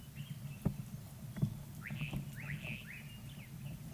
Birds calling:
Slate-colored Boubou (Laniarius funebris)

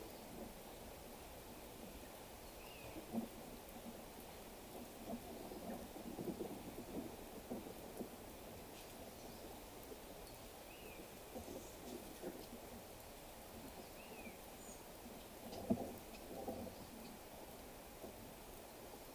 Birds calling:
Common Buzzard (Buteo buteo)

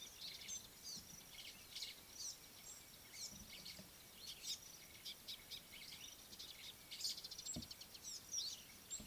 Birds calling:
Scarlet-chested Sunbird (Chalcomitra senegalensis), Mariqua Sunbird (Cinnyris mariquensis)

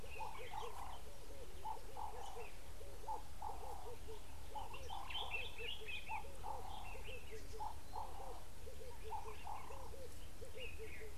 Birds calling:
Red-eyed Dove (Streptopelia semitorquata), Common Bulbul (Pycnonotus barbatus)

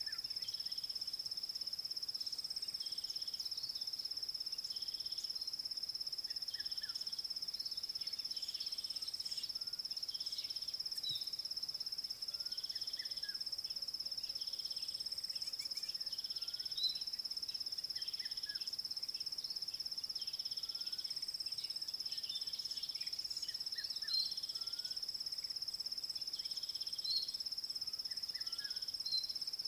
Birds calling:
White-rumped Shrike (Eurocephalus ruppelli)

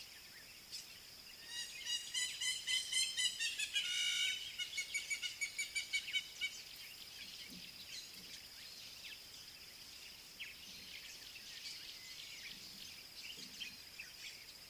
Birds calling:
Hamerkop (Scopus umbretta)

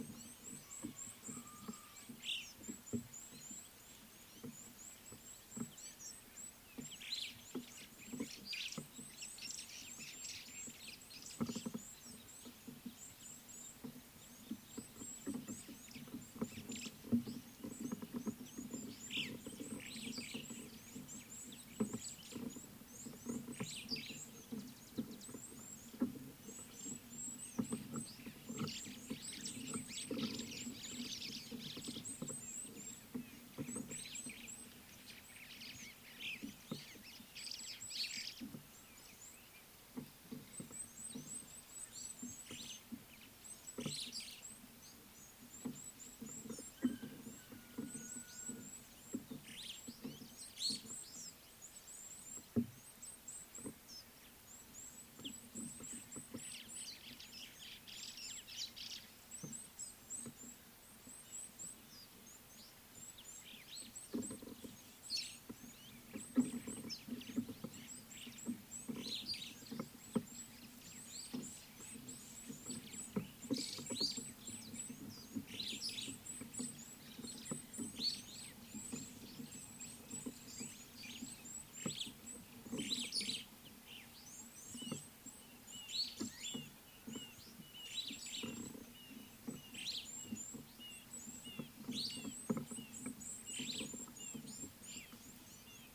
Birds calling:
Superb Starling (Lamprotornis superbus), White-browed Sparrow-Weaver (Plocepasser mahali), Red-fronted Barbet (Tricholaema diademata), Red-cheeked Cordonbleu (Uraeginthus bengalus)

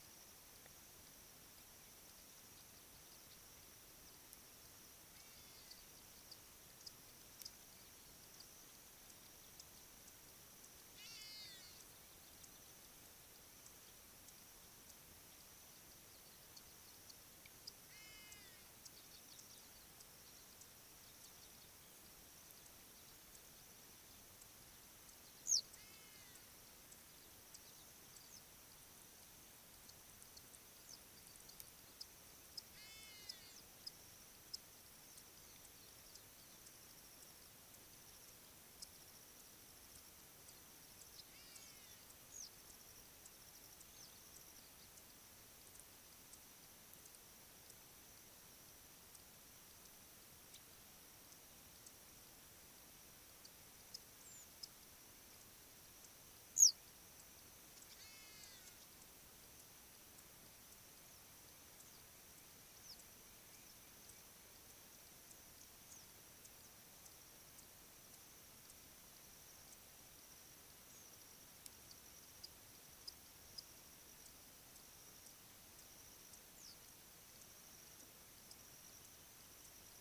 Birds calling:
Hadada Ibis (Bostrychia hagedash), Western Yellow Wagtail (Motacilla flava)

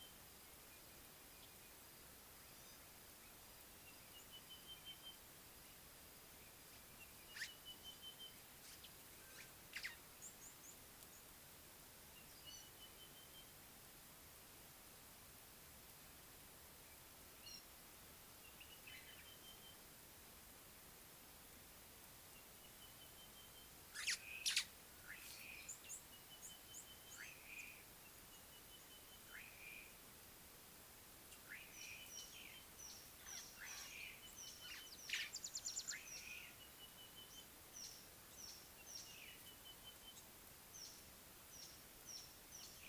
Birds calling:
Sulphur-breasted Bushshrike (Telophorus sulfureopectus), White-browed Sparrow-Weaver (Plocepasser mahali), Slate-colored Boubou (Laniarius funebris), Red-cheeked Cordonbleu (Uraeginthus bengalus)

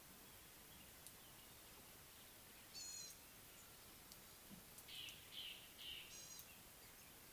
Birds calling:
Gray-backed Camaroptera (Camaroptera brevicaudata), Slate-colored Boubou (Laniarius funebris)

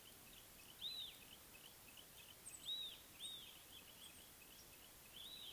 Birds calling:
Yellow-breasted Apalis (Apalis flavida), Red-backed Scrub-Robin (Cercotrichas leucophrys)

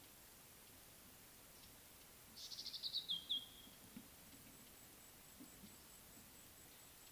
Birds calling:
Red-backed Scrub-Robin (Cercotrichas leucophrys)

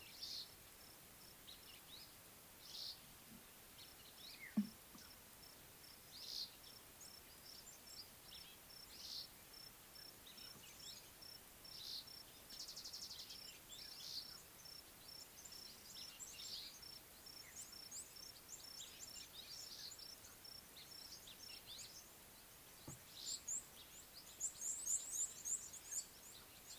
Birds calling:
Red-cheeked Cordonbleu (Uraeginthus bengalus), Mariqua Sunbird (Cinnyris mariquensis)

